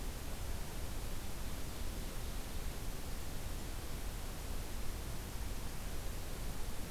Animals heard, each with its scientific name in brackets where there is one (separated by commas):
Ovenbird (Seiurus aurocapilla)